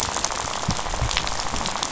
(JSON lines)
{"label": "biophony, rattle", "recorder": "SoundTrap 500"}